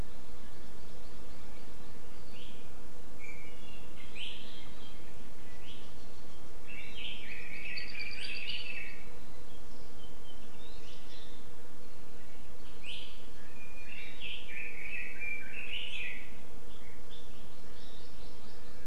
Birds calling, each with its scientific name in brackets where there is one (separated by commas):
Iiwi (Drepanis coccinea), Apapane (Himatione sanguinea), Red-billed Leiothrix (Leiothrix lutea), Hawaii Amakihi (Chlorodrepanis virens)